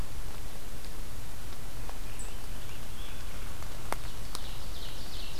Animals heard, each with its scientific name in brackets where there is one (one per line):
Scarlet Tanager (Piranga olivacea)
Ovenbird (Seiurus aurocapilla)